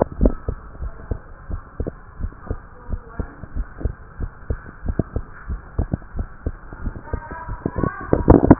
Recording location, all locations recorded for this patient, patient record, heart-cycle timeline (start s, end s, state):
tricuspid valve (TV)
aortic valve (AV)+pulmonary valve (PV)+tricuspid valve (TV)+mitral valve (MV)
#Age: Child
#Sex: Male
#Height: 123.0 cm
#Weight: 25.6 kg
#Pregnancy status: False
#Murmur: Absent
#Murmur locations: nan
#Most audible location: nan
#Systolic murmur timing: nan
#Systolic murmur shape: nan
#Systolic murmur grading: nan
#Systolic murmur pitch: nan
#Systolic murmur quality: nan
#Diastolic murmur timing: nan
#Diastolic murmur shape: nan
#Diastolic murmur grading: nan
#Diastolic murmur pitch: nan
#Diastolic murmur quality: nan
#Outcome: Normal
#Campaign: 2015 screening campaign
0.00	0.63	unannotated
0.63	0.79	diastole
0.79	0.92	S1
0.92	1.08	systole
1.08	1.20	S2
1.20	1.48	diastole
1.48	1.60	S1
1.60	1.78	systole
1.78	1.92	S2
1.92	2.17	diastole
2.17	2.32	S1
2.32	2.46	systole
2.46	2.60	S2
2.60	2.88	diastole
2.88	3.00	S1
3.00	3.17	systole
3.17	3.28	S2
3.28	3.53	diastole
3.53	3.68	S1
3.68	3.81	systole
3.81	3.94	S2
3.94	4.17	diastole
4.17	4.30	S1
4.30	4.46	systole
4.46	4.58	S2
4.58	4.84	diastole
4.84	4.96	S1
4.96	5.12	systole
5.12	5.24	S2
5.24	5.46	diastole
5.46	5.60	S1
5.60	5.76	systole
5.76	5.90	S2
5.90	6.13	diastole
6.13	6.28	S1
6.28	6.43	systole
6.43	6.56	S2
6.56	6.82	diastole
6.82	6.94	S1
6.94	7.10	systole
7.10	7.24	S2
7.24	7.48	diastole
7.48	7.59	S1
7.59	8.59	unannotated